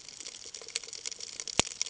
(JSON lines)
{"label": "ambient", "recorder": "HydroMoth"}